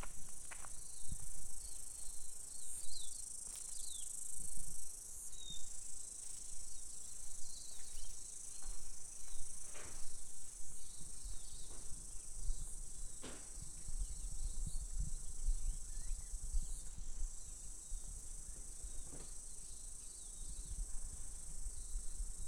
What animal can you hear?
Amphipsalta zelandica, a cicada